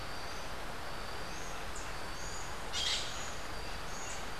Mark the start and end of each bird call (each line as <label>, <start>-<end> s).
Buff-throated Saltator (Saltator maximus), 0.0-4.3 s
Rufous-capped Warbler (Basileuterus rufifrons), 1.7-1.9 s
Crimson-fronted Parakeet (Psittacara finschi), 2.5-3.3 s